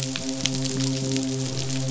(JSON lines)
{"label": "biophony, midshipman", "recorder": "SoundTrap 500"}